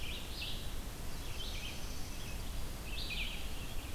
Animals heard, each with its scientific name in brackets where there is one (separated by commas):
Red-eyed Vireo (Vireo olivaceus)